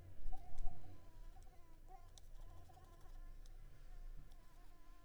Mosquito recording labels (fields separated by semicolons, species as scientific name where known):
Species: Anopheles coustani; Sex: female; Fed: unfed; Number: one; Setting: cup